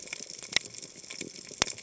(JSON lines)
{"label": "biophony", "recorder": "HydroMoth"}